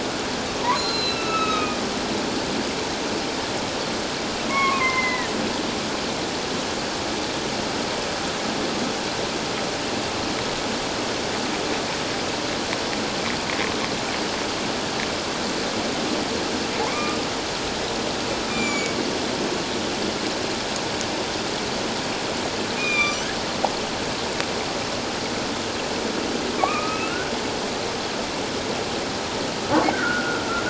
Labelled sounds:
0.8	1.8	humpback whale, 1.2 to 4.2 kHz
4.5	5.3	humpback whale, 0.97 to 2.3 kHz
16.9	17.2	humpback whale, 0.97 to 2.5 kHz
18.5	19.0	humpback whale, 2.2 to 7.2 kHz
22.8	23.3	humpback whale, 1.1 to 6.5 kHz
26.6	27.3	humpback whale, 1.1 to 2.9 kHz
29.9	30.4	humpback whale, 1.3 to 1.6 kHz

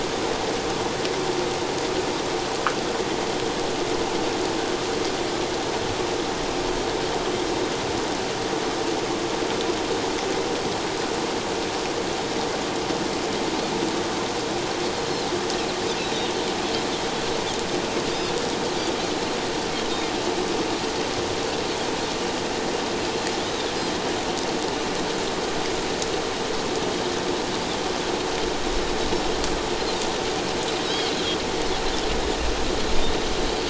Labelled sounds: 16.0	16.3	Pacific white-sided dolphin, 3.4 to 4.0 kHz
19.9	20.1	Pacific white-sided dolphin, 3.5 to 3.8 kHz

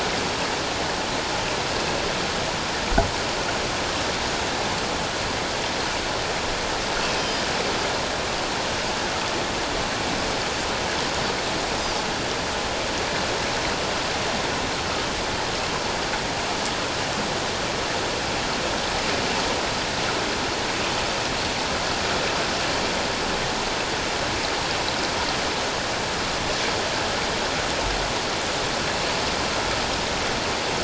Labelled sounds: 7.1	7.4	Pacific white-sided dolphin, 3.0 to 5.2 kHz

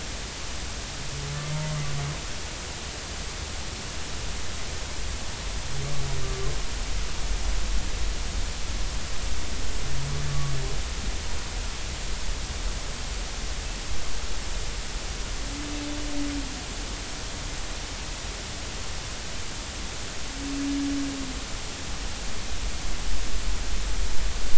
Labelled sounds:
10.3	10.5	humpback whale, 1.1 to 1.2 kHz

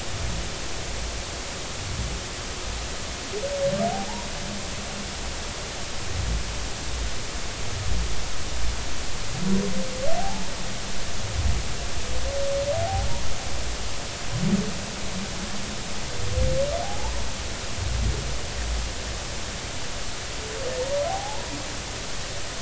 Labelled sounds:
10.2	10.5	humpback whale, 0.80 to 1.0 kHz
16.8	17.1	humpback whale, 0.80 to 1.0 kHz
20.7	21.5	humpback whale, 0.80 to 2.0 kHz

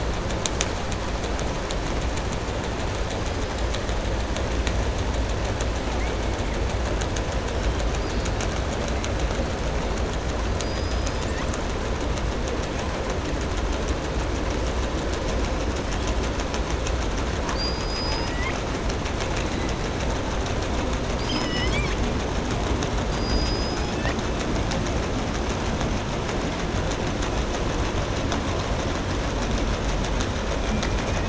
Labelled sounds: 17.3	18.6	killer whale, southern resident, 1.0 to 7.2 kHz

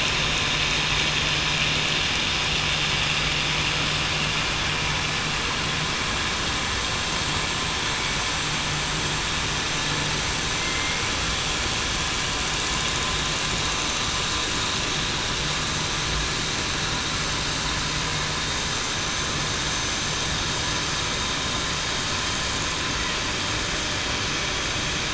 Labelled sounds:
10.5	11.1	killer whale, southern resident, 2.1 to 2.3 kHz

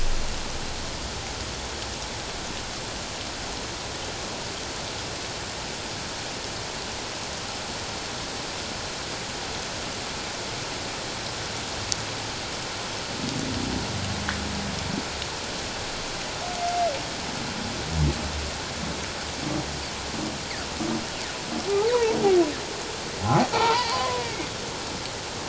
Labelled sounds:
23.2	24.5	humpback whale, 0.78 to 2.5 kHz

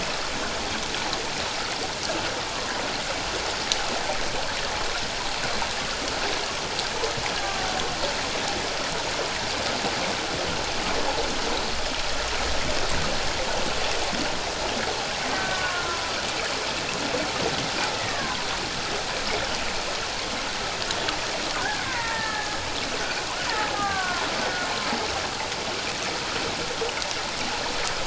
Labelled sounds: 15.3	16.1	killer whale, Bigg's (transient), 0.94 to 1.6 kHz
18.1	18.4	killer whale, Bigg's (transient), 0.97 to 1.3 kHz
21.6	22.6	killer whale, Bigg's (transient), 0.84 to 2.1 kHz
23.7	24.3	killer whale, Bigg's (transient), 0.91 to 1.7 kHz

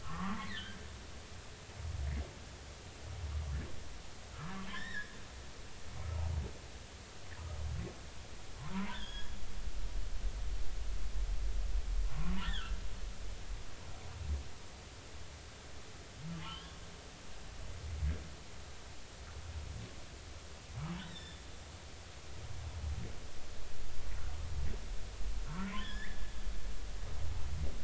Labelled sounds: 0.0	0.7	humpback whale, 0.90 to 2.3 kHz
4.3	5.2	humpback whale, 1.0 to 5.5 kHz
6.0	6.3	humpback whale, 1.2 to 1.3 kHz
8.9	9.3	humpback whale, 1.5 to 6.7 kHz
12.0	12.7	humpback whale, 0.96 to 1.9 kHz
16.4	16.8	humpback whale, 1.0 to 3.6 kHz
21.0	21.4	humpback whale, 1.7 to 5.7 kHz
25.5	26.3	humpback whale, 1.2 to 3.6 kHz

